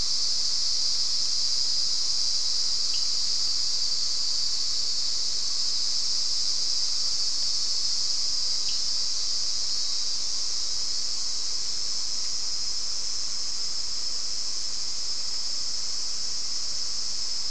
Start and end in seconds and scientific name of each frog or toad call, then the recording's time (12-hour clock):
2.9	3.0	Sphaenorhynchus surdus
8.6	8.8	Sphaenorhynchus surdus
6:15pm